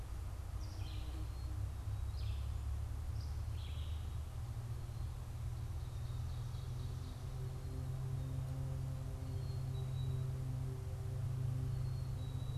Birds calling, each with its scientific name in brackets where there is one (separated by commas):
Red-eyed Vireo (Vireo olivaceus), Black-capped Chickadee (Poecile atricapillus), Ovenbird (Seiurus aurocapilla)